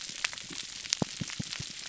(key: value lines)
label: biophony, pulse
recorder: SoundTrap 300